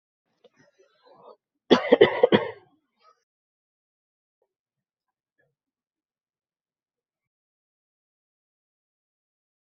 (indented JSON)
{
  "expert_labels": [
    {
      "quality": "good",
      "cough_type": "dry",
      "dyspnea": false,
      "wheezing": false,
      "stridor": false,
      "choking": false,
      "congestion": false,
      "nothing": true,
      "diagnosis": "healthy cough",
      "severity": "pseudocough/healthy cough"
    }
  ],
  "age": 25,
  "gender": "female",
  "respiratory_condition": false,
  "fever_muscle_pain": false,
  "status": "healthy"
}